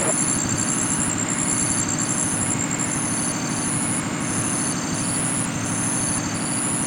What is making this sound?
Polionemobius taprobanense, an orthopteran